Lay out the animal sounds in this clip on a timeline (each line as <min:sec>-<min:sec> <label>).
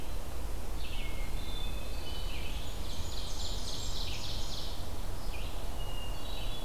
0:00.0-0:06.6 Red-eyed Vireo (Vireo olivaceus)
0:01.1-0:02.6 Hermit Thrush (Catharus guttatus)
0:02.4-0:04.0 Blackburnian Warbler (Setophaga fusca)
0:02.6-0:04.8 Ovenbird (Seiurus aurocapilla)
0:05.7-0:06.6 Hermit Thrush (Catharus guttatus)